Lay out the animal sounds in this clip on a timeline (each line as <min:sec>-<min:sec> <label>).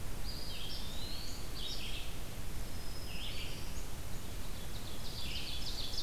0:00.0-0:06.0 Red-eyed Vireo (Vireo olivaceus)
0:00.0-0:01.8 Eastern Wood-Pewee (Contopus virens)
0:02.3-0:04.2 Black-throated Green Warbler (Setophaga virens)
0:04.7-0:06.0 Ovenbird (Seiurus aurocapilla)